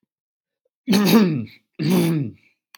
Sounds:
Throat clearing